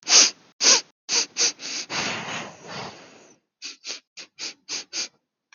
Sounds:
Sniff